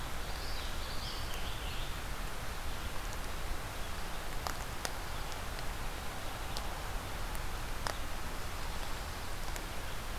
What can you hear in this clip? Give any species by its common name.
Common Yellowthroat